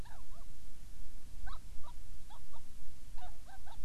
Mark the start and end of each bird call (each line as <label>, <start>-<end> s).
Hawaiian Petrel (Pterodroma sandwichensis), 0.0-0.5 s
Hawaiian Petrel (Pterodroma sandwichensis), 1.4-2.7 s
Hawaiian Petrel (Pterodroma sandwichensis), 3.1-3.8 s